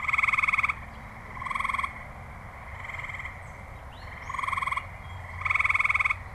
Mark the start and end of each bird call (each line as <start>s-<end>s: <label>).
3.6s-6.3s: Gray Catbird (Dumetella carolinensis)